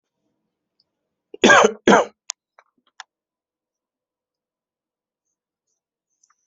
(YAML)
expert_labels:
- quality: good
  cough_type: dry
  dyspnea: false
  wheezing: false
  stridor: false
  choking: false
  congestion: false
  nothing: true
  diagnosis: upper respiratory tract infection
  severity: mild
age: 48
gender: male
respiratory_condition: false
fever_muscle_pain: false
status: healthy